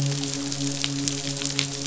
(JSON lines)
{"label": "biophony, midshipman", "recorder": "SoundTrap 500"}